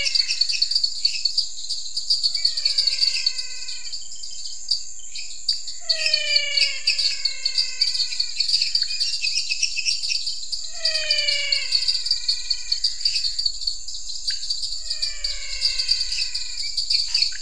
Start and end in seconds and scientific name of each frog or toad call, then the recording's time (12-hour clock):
0.0	16.7	Physalaemus albonotatus
0.0	17.4	Dendropsophus minutus
0.0	17.4	Dendropsophus nanus
0.0	17.4	Pithecopus azureus
17.0	17.3	Scinax fuscovarius
8:30pm